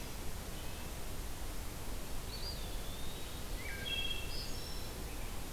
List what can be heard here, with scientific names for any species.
Sitta canadensis, Contopus virens, Hylocichla mustelina, Piranga olivacea